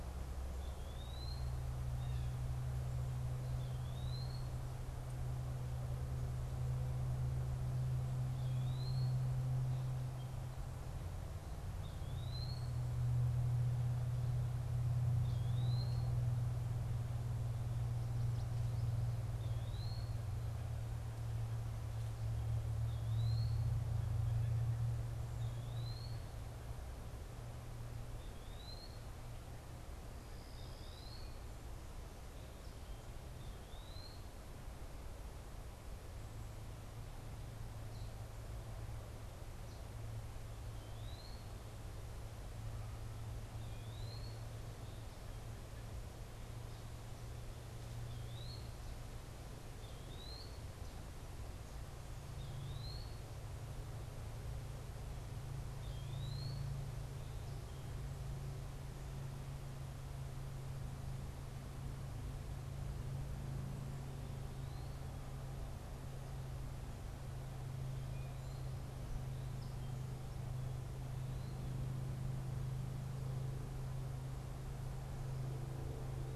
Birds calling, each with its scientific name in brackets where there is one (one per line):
Eastern Wood-Pewee (Contopus virens)